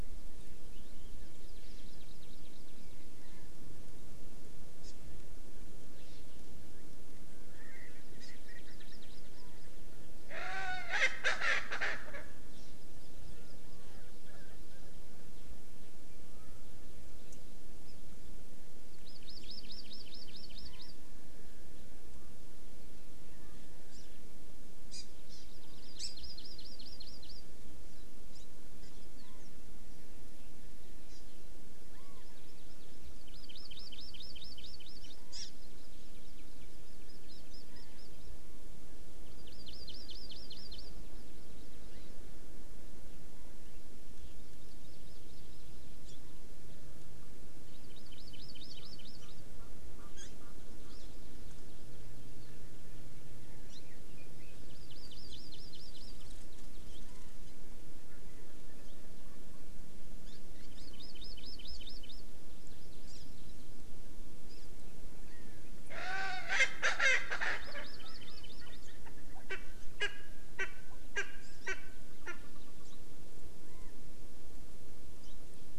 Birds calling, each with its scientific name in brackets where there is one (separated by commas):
Hawaii Amakihi (Chlorodrepanis virens), Chinese Hwamei (Garrulax canorus), Erckel's Francolin (Pternistis erckelii)